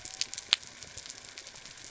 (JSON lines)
{"label": "biophony", "recorder": "SoundTrap 300"}